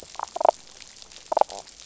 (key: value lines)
label: biophony, damselfish
recorder: SoundTrap 500

label: biophony
recorder: SoundTrap 500